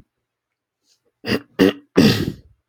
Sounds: Throat clearing